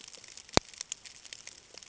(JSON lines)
{"label": "ambient", "recorder": "HydroMoth"}